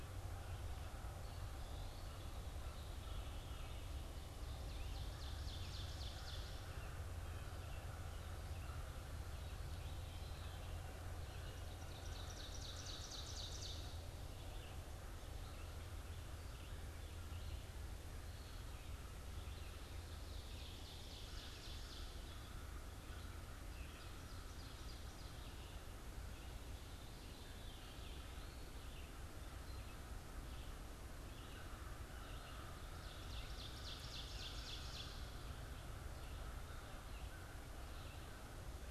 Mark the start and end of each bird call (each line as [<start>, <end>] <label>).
[0.00, 11.03] Veery (Catharus fuscescens)
[0.00, 19.23] American Crow (Corvus brachyrhynchos)
[0.00, 38.91] Red-eyed Vireo (Vireo olivaceus)
[4.33, 6.93] Ovenbird (Seiurus aurocapilla)
[11.23, 14.23] Ovenbird (Seiurus aurocapilla)
[19.93, 25.63] Ovenbird (Seiurus aurocapilla)
[20.43, 38.91] American Crow (Corvus brachyrhynchos)
[26.93, 28.53] Veery (Catharus fuscescens)
[32.83, 35.53] Ovenbird (Seiurus aurocapilla)